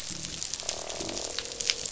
{"label": "biophony, croak", "recorder": "SoundTrap 500"}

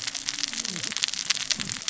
{"label": "biophony, cascading saw", "recorder": "SoundTrap 600 or HydroMoth"}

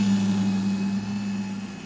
{"label": "anthrophony, boat engine", "recorder": "SoundTrap 500"}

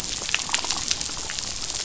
{"label": "biophony, damselfish", "recorder": "SoundTrap 500"}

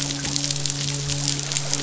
{"label": "biophony, midshipman", "recorder": "SoundTrap 500"}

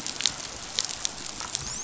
{"label": "biophony, dolphin", "recorder": "SoundTrap 500"}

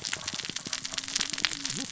{"label": "biophony, cascading saw", "recorder": "SoundTrap 600 or HydroMoth"}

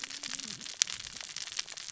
{"label": "biophony, cascading saw", "recorder": "SoundTrap 600 or HydroMoth"}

